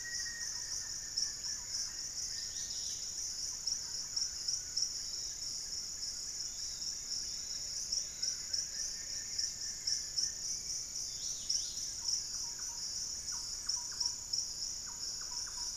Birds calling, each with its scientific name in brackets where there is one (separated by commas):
Collared Trogon (Trogon collaris), Yellow-margined Flycatcher (Tolmomyias assimilis), Wing-barred Piprites (Piprites chloris), Thrush-like Wren (Campylorhynchus turdinus), Lemon-throated Barbet (Eubucco richardsoni), Dusky-capped Greenlet (Pachysylvia hypoxantha), Black-faced Antthrush (Formicarius analis), Black-fronted Nunbird (Monasa nigrifrons)